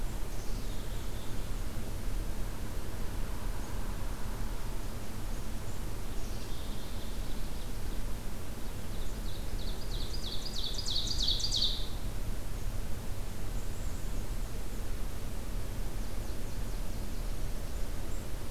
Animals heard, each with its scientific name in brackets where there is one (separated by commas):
Nashville Warbler (Leiothlypis ruficapilla), Black-capped Chickadee (Poecile atricapillus), Ovenbird (Seiurus aurocapilla), Black-and-white Warbler (Mniotilta varia)